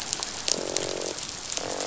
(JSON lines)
{"label": "biophony, croak", "recorder": "SoundTrap 500"}